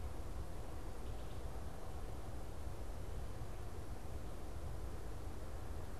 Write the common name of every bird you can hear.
Wood Thrush